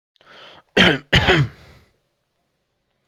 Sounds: Cough